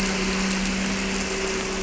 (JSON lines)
{"label": "anthrophony, boat engine", "recorder": "SoundTrap 300"}